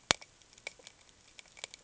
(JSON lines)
{"label": "ambient", "recorder": "HydroMoth"}